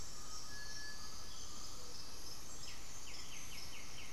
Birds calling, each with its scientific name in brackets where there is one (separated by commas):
Squirrel Cuckoo (Piaya cayana), Undulated Tinamou (Crypturellus undulatus), White-winged Becard (Pachyramphus polychopterus), Cinereous Tinamou (Crypturellus cinereus), Gray-fronted Dove (Leptotila rufaxilla)